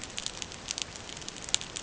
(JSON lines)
{"label": "ambient", "recorder": "HydroMoth"}